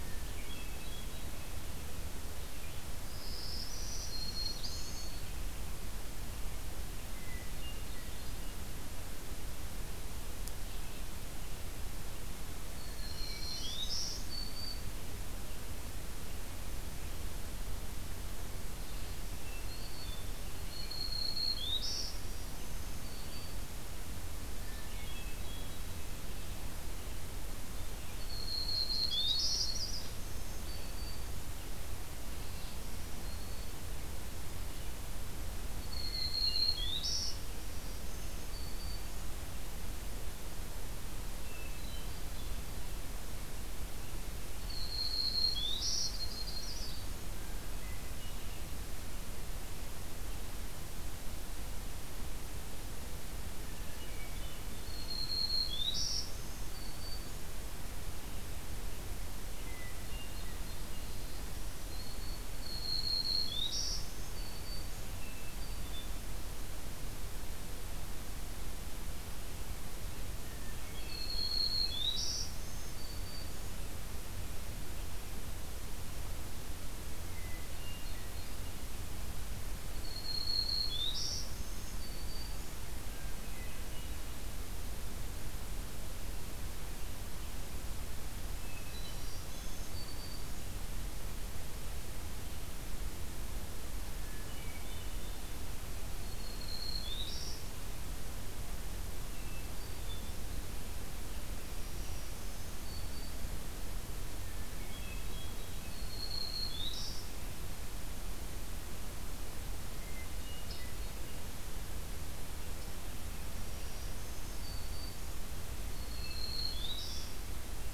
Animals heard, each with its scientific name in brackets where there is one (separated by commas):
Black-throated Green Warbler (Setophaga virens), Yellow-rumped Warbler (Setophaga coronata), Hermit Thrush (Catharus guttatus), Red-eyed Vireo (Vireo olivaceus)